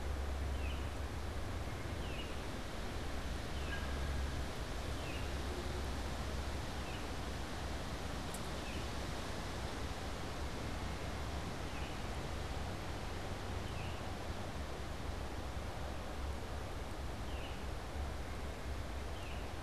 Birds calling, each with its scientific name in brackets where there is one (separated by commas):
Baltimore Oriole (Icterus galbula)